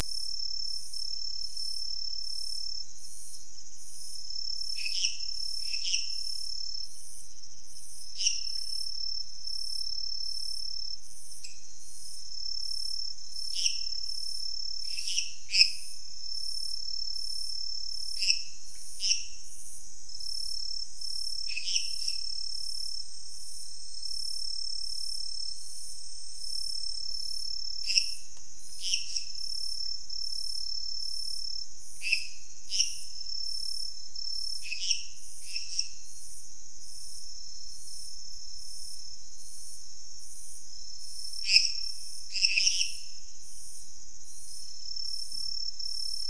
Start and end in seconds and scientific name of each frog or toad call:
4.6	6.4	Dendropsophus minutus
8.1	8.6	Dendropsophus minutus
13.4	16.1	Dendropsophus minutus
18.0	19.5	Dendropsophus minutus
21.4	22.4	Dendropsophus minutus
27.7	29.4	Dendropsophus minutus
31.9	36.1	Dendropsophus minutus
41.3	43.1	Dendropsophus minutus